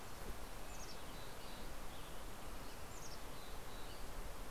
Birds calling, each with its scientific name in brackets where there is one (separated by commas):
Red-breasted Nuthatch (Sitta canadensis), Mountain Chickadee (Poecile gambeli)